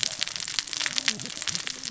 {"label": "biophony, cascading saw", "recorder": "SoundTrap 600 or HydroMoth"}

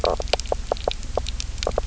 {"label": "biophony, knock croak", "recorder": "SoundTrap 300"}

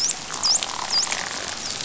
{"label": "biophony, dolphin", "recorder": "SoundTrap 500"}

